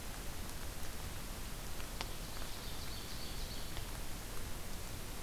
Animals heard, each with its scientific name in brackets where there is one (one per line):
Ovenbird (Seiurus aurocapilla)